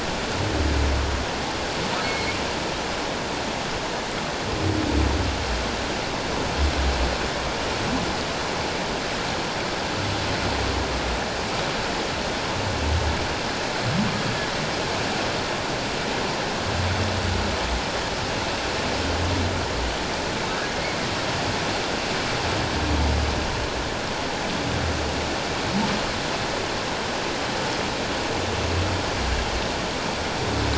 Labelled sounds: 2.0	2.4	humpback whale, 2.1 to 2.2 kHz

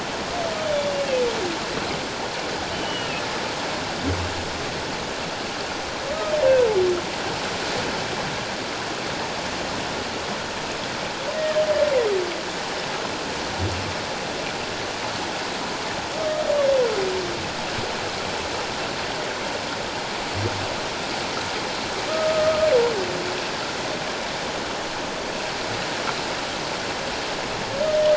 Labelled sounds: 2.7	3.1	humpback whale, 2.8 to 3.1 kHz
11.3	11.6	humpback whale, 1.6 to 1.9 kHz
22.1	22.7	humpback whale, 1.2 to 1.5 kHz

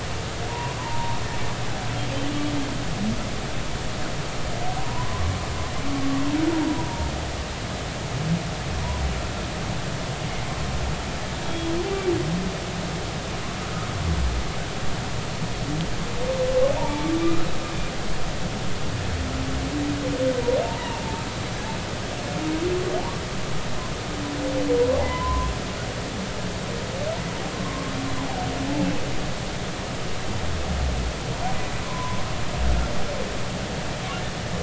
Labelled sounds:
0.5	1.2	humpback whale, 0.86 to 1.1 kHz
4.8	5.3	humpback whale, 0.90 to 1.2 kHz
8.8	9.0	humpback whale, 0.90 to 1.1 kHz
11.4	11.7	humpback whale, 3.3 to 3.4 kHz
16.8	17.1	humpback whale, 0.83 to 0.99 kHz
20.6	21.0	humpback whale, 0.86 to 1.0 kHz
25.0	25.5	humpback whale, 0.80 to 1.1 kHz
27.5	27.9	humpback whale, 1.0 to 1.2 kHz
31.8	32.2	humpback whale, 0.93 to 1.1 kHz

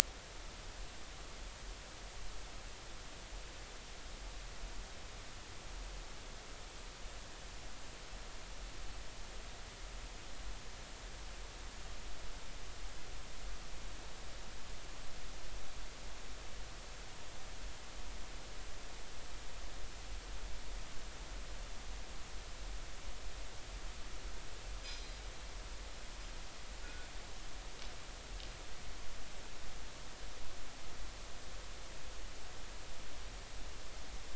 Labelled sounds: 24.8	25.1	anchor noise, 4.8 to 5.2 kHz
26.8	27.1	anchor noise, 1.4 to 1.5 kHz

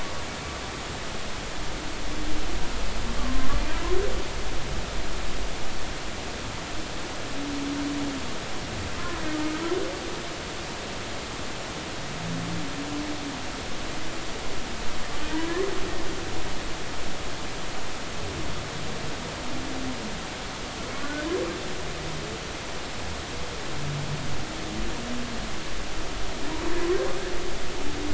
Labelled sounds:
3.2	3.5	humpback whale, 0.99 to 1.2 kHz
15.3	15.6	humpback whale, 1.5 to 1.9 kHz
21.0	21.3	humpback whale, 1.4 to 1.6 kHz

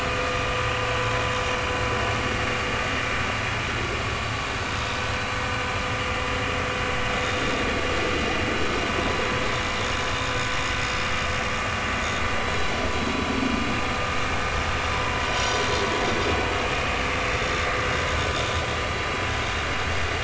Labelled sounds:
7.2	7.5	vessel noise, 3.5 to 3.8 kHz
12.4	12.7	vessel noise, 3.8 to 4.0 kHz
15.2	15.7	vessel noise, 3.0 to 5.9 kHz
17.3	17.6	vessel noise, 6.5 to 6.8 kHz

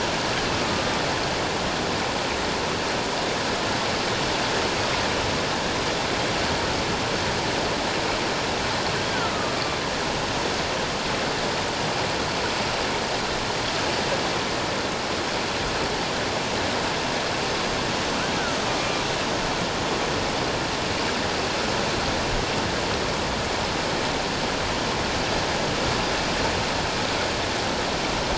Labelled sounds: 9.1	9.5	killer whale, northern resident, A clan, AA subclan, A01 pod, 1.1 to 1.6 kHz
18.6	19.0	killer whale, northern resident, A clan, AA subclan, A01 pod, 1.1 to 2.4 kHz

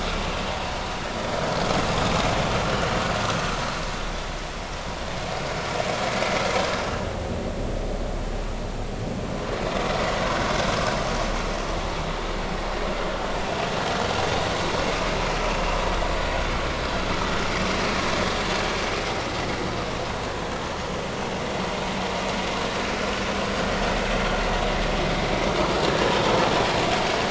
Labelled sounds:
25.9	26.1	vessel noise, 1.6 to 1.8 kHz

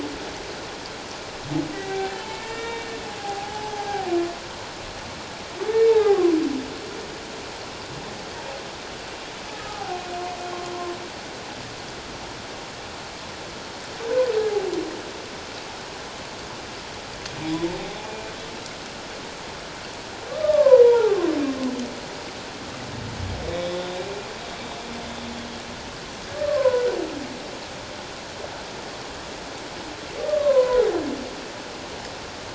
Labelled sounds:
1.7	2.9	humpback whale, 0.78 to 3.8 kHz
3.2	4.1	humpback whale, 0.78 to 0.91 kHz
5.7	6.3	humpback whale, 0.78 to 2.3 kHz
9.5	10.0	humpback whale, 0.78 to 1.3 kHz
17.7	18.3	humpback whale, 0.78 to 2.4 kHz
20.4	21.2	humpback whale, 0.78 to 2.0 kHz
23.4	23.9	humpback whale, 2.2 to 3.8 kHz
26.5	27.0	humpback whale, 0.94 to 1.6 kHz
30.2	30.8	humpback whale, 0.94 to 1.2 kHz

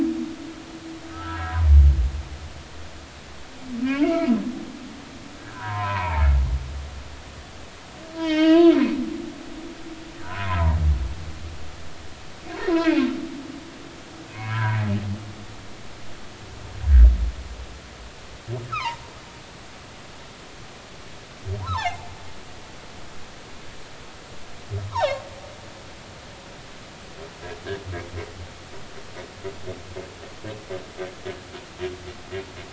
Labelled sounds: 1.1	1.6	humpback whale, 1.2 to 1.7 kHz
4.0	4.3	humpback whale, 1.2 to 2.4 kHz
5.4	6.2	humpback whale, 0.83 to 2.6 kHz
8.2	8.8	humpback whale, 0.86 to 5.6 kHz
10.2	10.8	humpback whale, 0.80 to 1.7 kHz
12.7	13.1	humpback whale, 1.5 to 2.7 kHz
14.3	14.8	humpback whale, 0.90 to 2.7 kHz
18.7	19.0	humpback whale, 0.86 to 2.7 kHz
21.6	22.1	humpback whale, 0.80 to 4.1 kHz
24.9	25.2	humpback whale, 0.80 to 3.9 kHz

